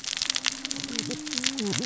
{"label": "biophony, cascading saw", "recorder": "SoundTrap 600 or HydroMoth"}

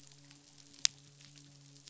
{"label": "biophony, midshipman", "recorder": "SoundTrap 500"}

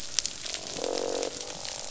{"label": "biophony, croak", "recorder": "SoundTrap 500"}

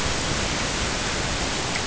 {"label": "ambient", "recorder": "HydroMoth"}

